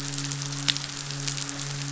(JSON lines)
{"label": "biophony, midshipman", "recorder": "SoundTrap 500"}